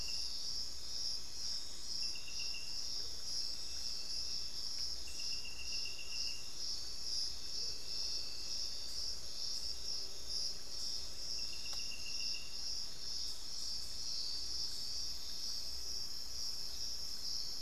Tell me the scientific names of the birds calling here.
Momotus momota